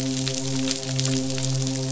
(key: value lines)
label: biophony, midshipman
recorder: SoundTrap 500